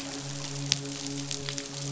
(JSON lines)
{"label": "biophony, midshipman", "recorder": "SoundTrap 500"}